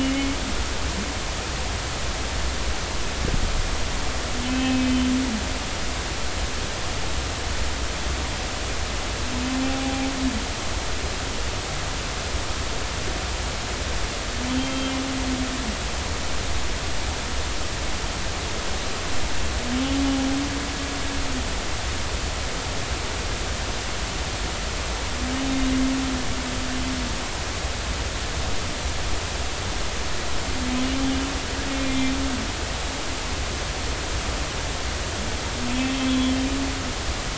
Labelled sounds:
0.1	0.4	humpback whale, 2.1 to 2.3 kHz
4.4	5.1	humpback whale, 2.5 to 3.2 kHz
9.7	10.0	humpback whale, 0.80 to 0.86 kHz
14.5	14.9	humpback whale, 3.0 to 3.2 kHz
31.8	32.1	humpback whale, 2.0 to 2.4 kHz
36.1	36.3	humpback whale, 3.3 to 3.4 kHz

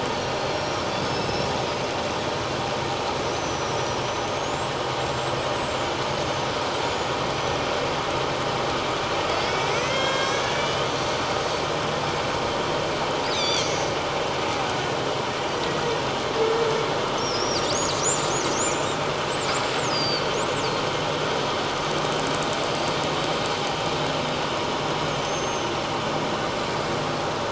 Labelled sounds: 0.1	1.5	killer whale, northern resident, 4.0 to 8.0 kHz
3.3	6.0	killer whale, northern resident, 5.5 to 7.9 kHz
6.8	7.7	killer whale, northern resident, 5.8 to 7.1 kHz
9.3	10.9	killer whale, northern resident, 1.5 to 7.8 kHz
13.3	13.9	killer whale, northern resident, 2.0 to 6.7 kHz
15.6	15.8	killer whale, northern resident, 1.9 to 2.0 kHz
17.2	18.9	killer whale, northern resident, 4.9 to 7.4 kHz
19.9	20.3	killer whale, northern resident, 4.3 to 5.3 kHz
22.8	23.6	killer whale, northern resident, 4.4 to 4.8 kHz
25.2	25.8	killer whale, northern resident, 6.0 to 6.4 kHz

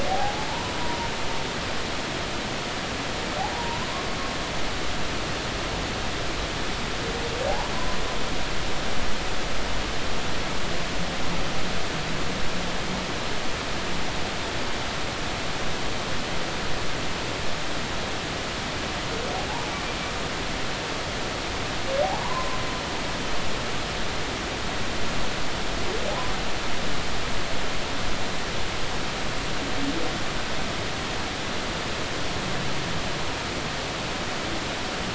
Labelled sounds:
0.1	1.1	humpback whale, 0.80 to 1.1 kHz
3.5	3.8	humpback whale, 0.90 to 1.0 kHz
22.2	22.6	humpback whale, 0.90 to 1.2 kHz

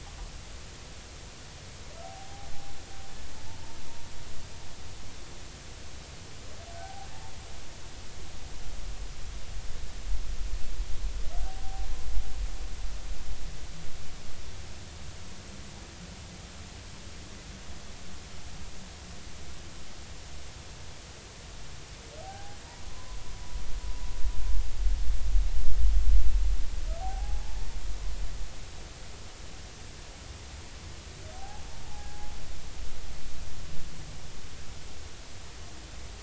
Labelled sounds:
2.0	2.5	humpback whale, 0.80 to 0.86 kHz
3.5	3.8	humpback whale, 0.86 to 0.96 kHz
6.8	7.1	humpback whale, 0.80 to 0.86 kHz
11.4	11.9	humpback whale, 0.80 to 0.83 kHz
22.2	23.2	humpback whale, 0.80 to 1.1 kHz
27.0	27.7	humpback whale, 0.80 to 0.96 kHz
31.3	32.3	humpback whale, 0.80 to 0.90 kHz

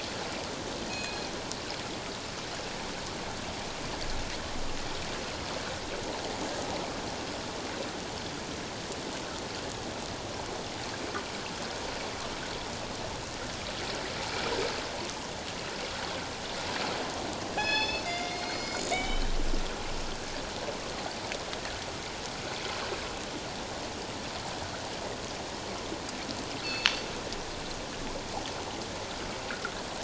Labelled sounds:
0.9	1.3	killer whale, northern resident, G clan, call N24ii, 2.4 to 4.3 kHz
17.5	19.3	killer whale, northern resident, G clan, call N24ii, 1.6 to 7.3 kHz
26.6	26.9	killer whale, northern resident, G clan, call N24ii, 2.5 to 4.5 kHz

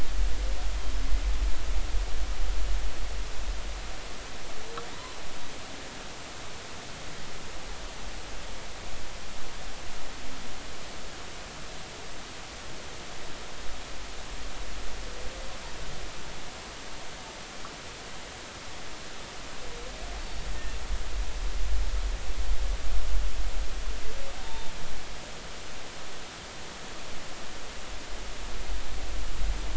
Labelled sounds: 20.2	20.5	humpback whale, 4.4 to 4.6 kHz
24.4	24.7	humpback whale, 0.86 to 3.7 kHz

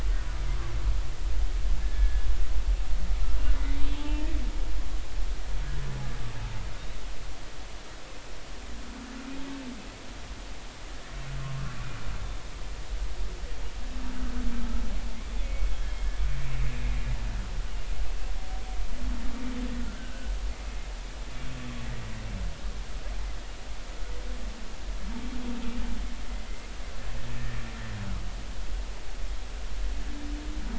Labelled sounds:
1.8	2.3	humpback whale, 1.6 to 1.8 kHz
3.9	4.3	humpback whale, 0.83 to 3.1 kHz
15.4	16.1	humpback whale, 2.1 to 3.3 kHz
19.9	20.3	humpback whale, 1.4 to 1.7 kHz

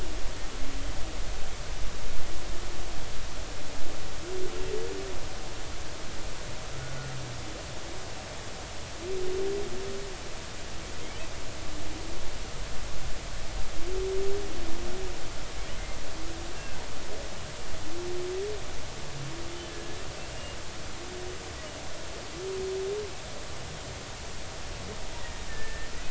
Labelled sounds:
16.5	16.8	humpback whale, 1.5 to 1.7 kHz
25.2	25.9	humpback whale, 1.7 to 2.0 kHz

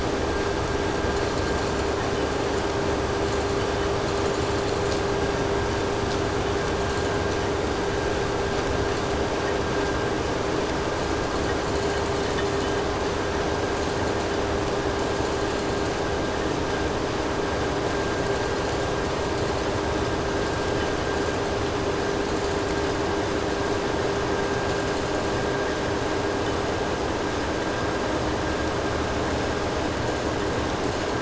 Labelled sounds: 0.9	2.2	vessel noise, 3.4 to 8.0 kHz
3.2	5.2	vessel noise, 3.4 to 8.0 kHz
6.6	7.5	vessel noise, 3.4 to 8.0 kHz
10.9	13.0	vessel noise, 2.8 to 8.0 kHz
13.7	14.6	vessel noise, 3.2 to 8.0 kHz
14.9	16.1	vessel noise, 4.0 to 8.0 kHz
17.8	19.9	vessel noise, 3.8 to 8.0 kHz
20.3	21.5	vessel noise, 3.7 to 8.0 kHz
22.2	23.2	vessel noise, 3.9 to 8.0 kHz
24.7	25.5	vessel noise, 3.9 to 8.0 kHz
30.8	31.1	vessel noise, 3.9 to 8.0 kHz

